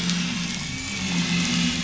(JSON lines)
{"label": "anthrophony, boat engine", "recorder": "SoundTrap 500"}